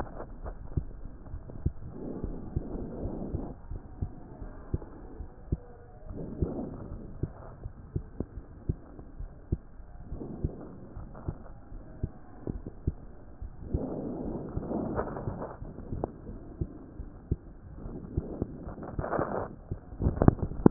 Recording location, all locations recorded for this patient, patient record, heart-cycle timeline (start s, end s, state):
aortic valve (AV)
aortic valve (AV)+pulmonary valve (PV)+tricuspid valve (TV)+mitral valve (MV)
#Age: Adolescent
#Sex: Male
#Height: 142.0 cm
#Weight: 37.6 kg
#Pregnancy status: False
#Murmur: Absent
#Murmur locations: nan
#Most audible location: nan
#Systolic murmur timing: nan
#Systolic murmur shape: nan
#Systolic murmur grading: nan
#Systolic murmur pitch: nan
#Systolic murmur quality: nan
#Diastolic murmur timing: nan
#Diastolic murmur shape: nan
#Diastolic murmur grading: nan
#Diastolic murmur pitch: nan
#Diastolic murmur quality: nan
#Outcome: Normal
#Campaign: 2015 screening campaign
0.00	4.36	unannotated
4.36	4.56	S1
4.56	4.68	systole
4.68	4.86	S2
4.86	5.15	diastole
5.15	5.30	S1
5.30	5.44	systole
5.44	5.58	S2
5.58	6.07	diastole
6.07	6.24	S1
6.24	6.35	systole
6.35	6.50	S2
6.50	6.85	diastole
6.85	7.04	S1
7.04	7.17	systole
7.17	7.32	S2
7.32	7.58	diastole
7.58	7.73	S1
7.73	7.91	systole
7.91	8.06	S2
8.06	8.34	diastole
8.34	8.47	S1
8.47	8.64	systole
8.64	8.79	S2
8.79	9.14	diastole
9.14	9.31	S1
9.31	9.45	systole
9.45	9.61	S2
9.61	10.06	diastole
10.06	10.23	S1
10.23	10.37	systole
10.37	10.54	S2
10.54	10.91	diastole
10.91	11.09	S1
11.09	11.23	systole
11.23	11.35	S2
11.35	11.66	diastole
11.66	11.84	S1
11.84	11.97	systole
11.97	12.12	S2
12.12	12.48	diastole
12.48	12.62	S1
12.62	12.80	systole
12.80	12.94	S2
12.94	13.38	diastole
13.38	13.53	S1
13.53	13.68	systole
13.68	13.83	S2
13.83	14.22	diastole
14.22	14.41	S1
14.41	14.51	systole
14.51	14.65	S2
14.65	14.89	diastole
14.89	15.07	S1
15.07	15.19	systole
15.19	15.38	S2
15.38	15.58	diastole
15.58	15.77	S1
15.77	15.94	systole
15.94	16.10	S2
16.10	16.24	diastole
16.24	16.45	S1
16.45	16.56	systole
16.56	16.72	S2
16.72	16.95	diastole
16.95	17.12	S1
17.12	17.26	systole
17.26	17.40	S2
17.40	17.79	diastole
17.79	17.99	S1
17.99	18.14	systole
18.14	18.30	S2
18.30	18.43	diastole
18.43	20.70	unannotated